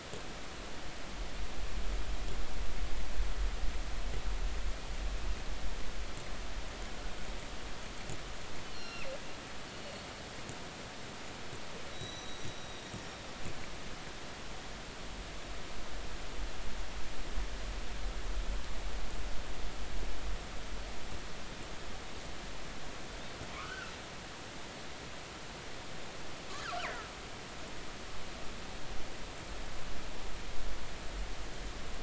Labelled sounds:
8.6	10.0	killer whale, northern resident, G clan, GG subclan, call N28, 1.3 to 5.7 kHz
11.9	12.9	killer whale, northern resident, G clan, GG subclan, 3.7 to 6.0 kHz
23.5	23.9	killer whale, northern resident, 1.0 to 1.6 kHz
26.5	27.0	killer whale, northern resident, G clan, call N48, 1.1 to 3.2 kHz

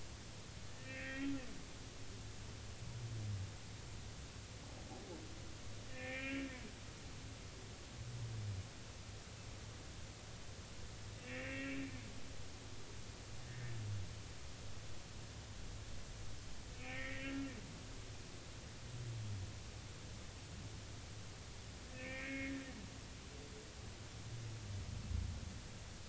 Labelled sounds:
0.7	1.3	humpback whale, 1.5 to 3.3 kHz
5.9	6.4	humpback whale, 1.7 to 3.0 kHz
11.2	11.8	humpback whale, 1.7 to 2.8 kHz
13.5	13.8	humpback whale, 1.7 to 1.9 kHz
16.8	17.5	humpback whale, 1.3 to 2.6 kHz
21.9	22.5	humpback whale, 1.7 to 2.6 kHz

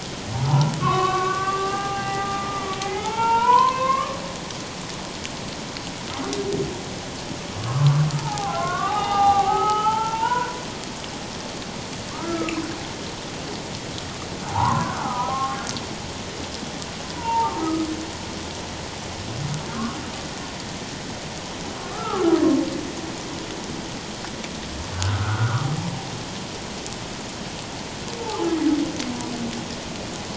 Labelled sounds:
0.5	4.2	humpback whale, 0.78 to 3.1 kHz
7.6	10.6	humpback whale, 0.78 to 3.8 kHz
12.1	12.6	humpback whale, 1.0 to 1.4 kHz
14.5	15.6	humpback whale, 0.78 to 1.4 kHz
17.2	17.9	humpback whale, 0.84 to 1.3 kHz
21.8	22.4	humpback whale, 1.0 to 1.5 kHz
24.9	25.7	humpback whale, 0.94 to 1.6 kHz
28.2	28.5	humpback whale, 0.78 to 0.94 kHz

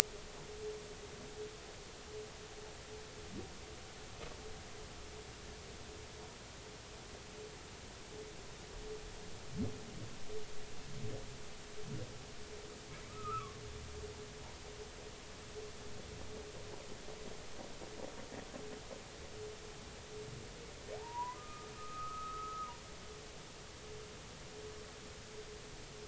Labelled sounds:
13.1	13.6	humpback whale, 1.0 to 2.8 kHz
21.0	22.7	humpback whale, 0.80 to 1.3 kHz

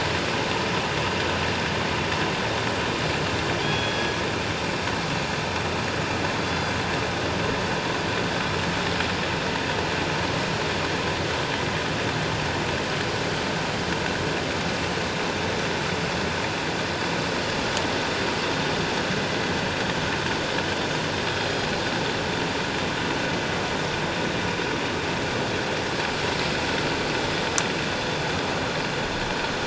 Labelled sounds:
3.6	4.1	killer whale, northern resident, G clan, 2.4 to 3.4 kHz
6.5	6.7	killer whale, northern resident, G clan, 3.4 to 3.5 kHz

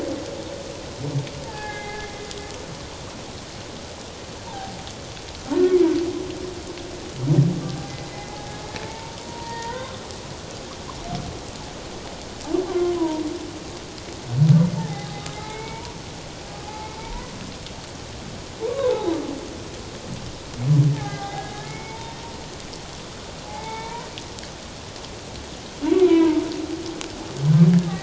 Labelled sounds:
1.4	2.0	humpback whale, 0.78 to 2.2 kHz
4.4	4.7	humpback whale, 0.78 to 1.0 kHz
7.6	8.6	humpback whale, 0.78 to 2.1 kHz
8.8	10.0	humpback whale, 0.84 to 2.3 kHz
12.7	13.2	humpback whale, 0.88 to 1.2 kHz
14.8	15.9	humpback whale, 0.78 to 4.0 kHz
16.6	17.3	humpback whale, 0.78 to 1.1 kHz
18.6	19.1	humpback whale, 0.81 to 1.2 kHz
20.9	22.2	humpback whale, 0.78 to 3.7 kHz
23.4	24.1	humpback whale, 0.78 to 3.7 kHz
26.1	26.4	humpback whale, 0.88 to 1.0 kHz

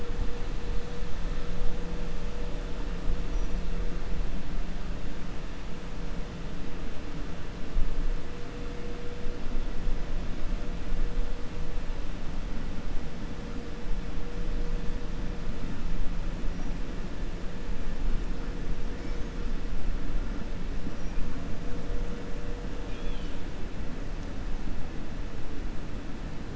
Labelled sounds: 22.8	23.4	killer whale, 2.4 to 5.2 kHz

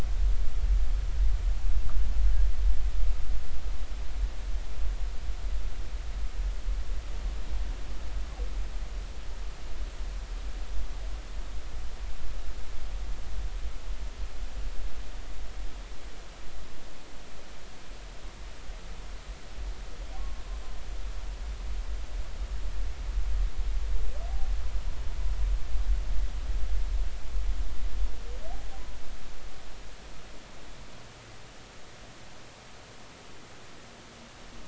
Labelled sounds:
20.2	20.4	humpback whale, 1.0 to 1.2 kHz

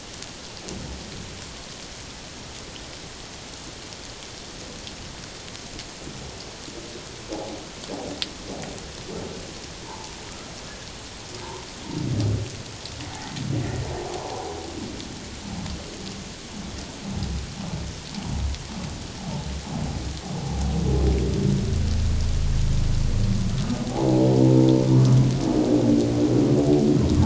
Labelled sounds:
7.3	7.6	humpback whale, 0.78 to 0.91 kHz
9.9	10.1	humpback whale, 0.81 to 1.1 kHz
11.4	11.7	humpback whale, 0.84 to 1.1 kHz
13.1	14.5	humpback whale, 0.78 to 1.1 kHz

